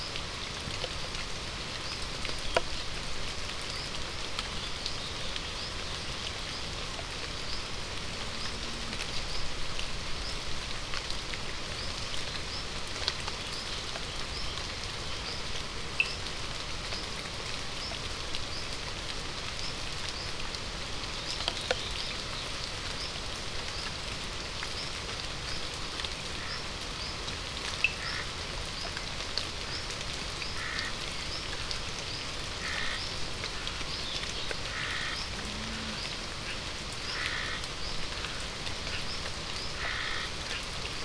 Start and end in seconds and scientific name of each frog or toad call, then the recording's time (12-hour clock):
15.9	16.2	Sphaenorhynchus surdus
27.8	27.9	Sphaenorhynchus surdus
27.9	28.3	Scinax perereca
30.5	30.9	Scinax perereca
32.5	33.1	Scinax perereca
34.6	35.3	Scinax perereca
37.1	37.7	Scinax perereca
39.7	40.3	Scinax perereca
6:30pm